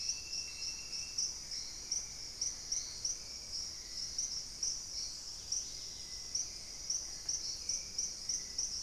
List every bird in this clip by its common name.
Hauxwell's Thrush, Dusky-capped Greenlet